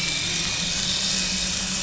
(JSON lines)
{"label": "anthrophony, boat engine", "recorder": "SoundTrap 500"}